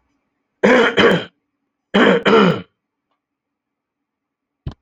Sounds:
Throat clearing